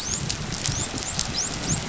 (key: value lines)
label: biophony, dolphin
recorder: SoundTrap 500